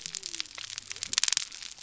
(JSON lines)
{"label": "biophony", "recorder": "SoundTrap 300"}